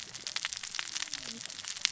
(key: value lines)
label: biophony, cascading saw
recorder: SoundTrap 600 or HydroMoth